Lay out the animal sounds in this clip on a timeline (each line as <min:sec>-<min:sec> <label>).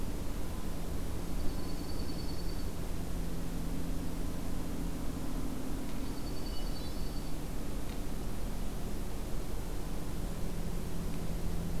0:01.0-0:02.8 Dark-eyed Junco (Junco hyemalis)
0:05.9-0:07.5 Dark-eyed Junco (Junco hyemalis)
0:06.1-0:07.2 Hermit Thrush (Catharus guttatus)